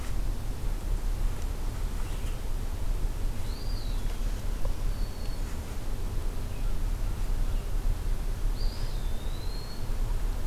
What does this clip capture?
Red-eyed Vireo, Eastern Wood-Pewee, Black-throated Green Warbler